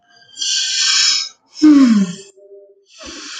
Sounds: Sigh